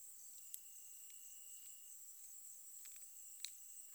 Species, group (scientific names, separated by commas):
Oecanthus allardi, Orthoptera